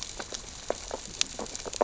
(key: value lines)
label: biophony, sea urchins (Echinidae)
recorder: SoundTrap 600 or HydroMoth